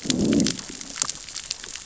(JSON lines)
{"label": "biophony, growl", "recorder": "SoundTrap 600 or HydroMoth"}